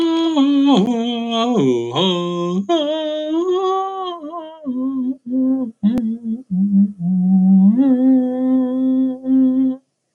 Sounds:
Sigh